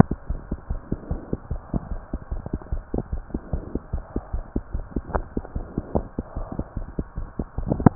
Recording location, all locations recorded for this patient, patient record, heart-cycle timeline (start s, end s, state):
aortic valve (AV)
aortic valve (AV)+pulmonary valve (PV)+tricuspid valve (TV)+mitral valve (MV)
#Age: Child
#Sex: Male
#Height: 104.0 cm
#Weight: 17.1 kg
#Pregnancy status: False
#Murmur: Absent
#Murmur locations: nan
#Most audible location: nan
#Systolic murmur timing: nan
#Systolic murmur shape: nan
#Systolic murmur grading: nan
#Systolic murmur pitch: nan
#Systolic murmur quality: nan
#Diastolic murmur timing: nan
#Diastolic murmur shape: nan
#Diastolic murmur grading: nan
#Diastolic murmur pitch: nan
#Diastolic murmur quality: nan
#Outcome: Abnormal
#Campaign: 2015 screening campaign
0.00	0.27	unannotated
0.27	0.38	S1
0.38	0.49	systole
0.49	0.57	S2
0.57	0.69	diastole
0.69	0.79	S1
0.79	0.89	systole
0.89	0.97	S2
0.97	1.08	diastole
1.08	1.19	S1
1.19	1.30	systole
1.30	1.39	S2
1.39	1.48	diastole
1.48	1.58	S1
1.58	1.71	systole
1.71	1.79	S2
1.79	1.90	diastole
1.90	2.00	S1
2.00	2.11	systole
2.11	2.19	S2
2.19	2.30	diastole
2.30	2.40	S1
2.40	2.51	systole
2.51	2.59	S2
2.59	2.71	diastole
2.71	2.79	S1
2.79	2.92	systole
2.92	3.00	S2
3.00	3.10	diastole
3.10	3.20	S1
3.20	3.32	systole
3.32	3.39	S2
3.39	3.51	diastole
3.51	3.60	S1
3.60	3.72	systole
3.72	3.79	S2
3.79	3.91	diastole
3.91	4.01	S1
4.01	7.95	unannotated